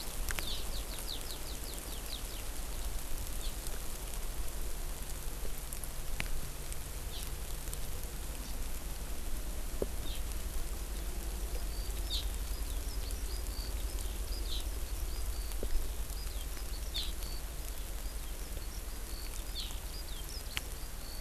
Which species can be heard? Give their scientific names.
Alauda arvensis